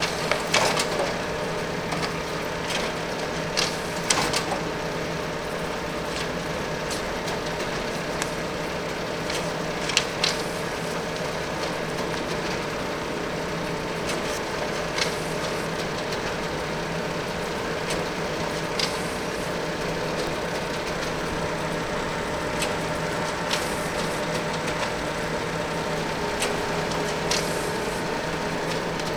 What is the cadence of the sound?
steady